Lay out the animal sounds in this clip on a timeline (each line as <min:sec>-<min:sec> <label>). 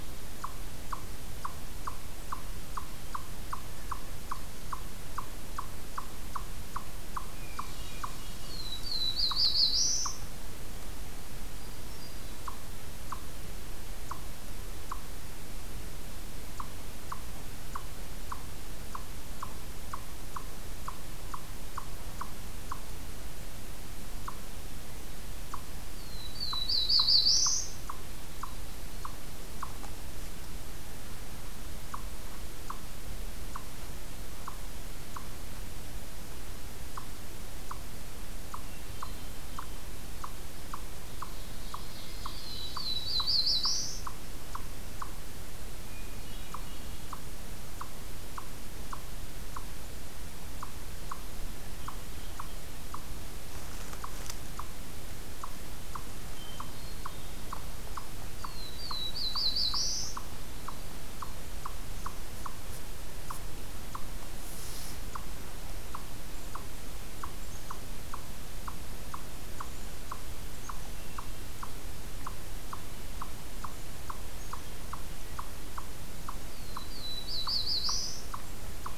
0:00.0-0:22.9 Eastern Chipmunk (Tamias striatus)
0:07.2-0:08.7 Hermit Thrush (Catharus guttatus)
0:08.3-0:10.4 Black-throated Blue Warbler (Setophaga caerulescens)
0:11.3-0:12.7 Hermit Thrush (Catharus guttatus)
0:24.0-1:19.0 Eastern Chipmunk (Tamias striatus)
0:25.8-0:27.9 Black-throated Blue Warbler (Setophaga caerulescens)
0:38.4-0:40.1 Hermit Thrush (Catharus guttatus)
0:41.0-0:43.5 Ovenbird (Seiurus aurocapilla)
0:42.2-0:44.3 Black-throated Blue Warbler (Setophaga caerulescens)
0:45.7-0:47.6 Hermit Thrush (Catharus guttatus)
0:56.0-0:57.7 Hermit Thrush (Catharus guttatus)
0:58.3-1:00.4 Black-throated Blue Warbler (Setophaga caerulescens)
1:16.4-1:18.4 Black-throated Blue Warbler (Setophaga caerulescens)